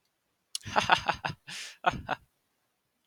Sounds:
Laughter